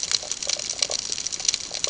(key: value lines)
label: ambient
recorder: HydroMoth